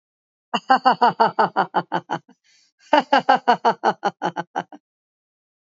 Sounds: Laughter